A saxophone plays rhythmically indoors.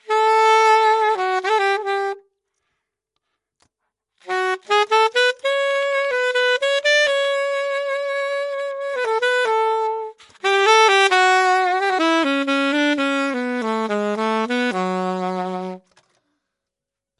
0:00.1 0:02.2, 0:04.3 0:15.8

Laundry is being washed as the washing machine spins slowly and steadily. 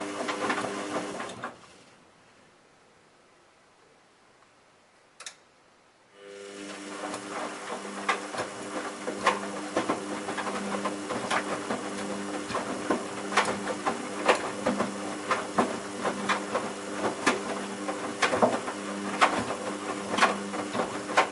0:00.0 0:01.6, 0:06.1 0:21.3

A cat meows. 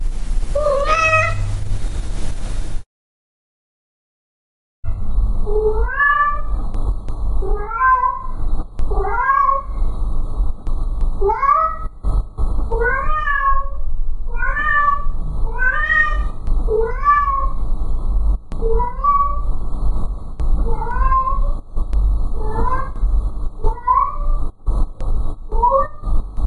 0:00.6 0:01.4, 0:05.5 0:06.4, 0:07.4 0:08.3, 0:12.7 0:17.6, 0:18.6 0:19.5, 0:20.7 0:21.5, 0:22.3 0:23.0, 0:23.6 0:24.4, 0:25.5 0:26.3

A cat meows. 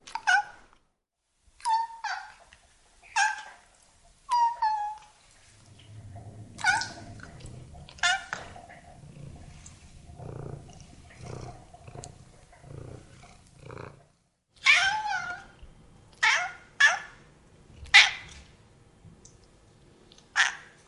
0:00.1 0:00.4, 0:01.6 0:02.3, 0:03.0 0:03.5, 0:04.3 0:04.9, 0:06.3 0:08.4, 0:14.6 0:15.5, 0:16.2 0:17.1

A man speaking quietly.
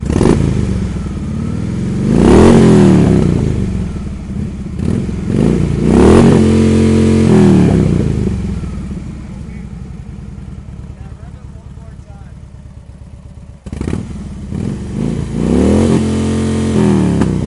0:10.9 0:12.7

